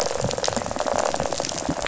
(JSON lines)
{"label": "biophony, rattle", "recorder": "SoundTrap 500"}